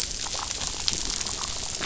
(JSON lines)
{"label": "biophony, damselfish", "recorder": "SoundTrap 500"}